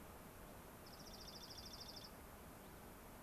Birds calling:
Dark-eyed Junco (Junco hyemalis), Cassin's Finch (Haemorhous cassinii)

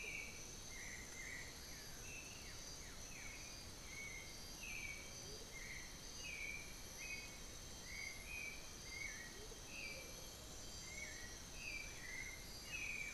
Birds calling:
Blue-gray Saltator (Saltator coerulescens), Amazonian Motmot (Momotus momota), Black-billed Thrush (Turdus ignobilis)

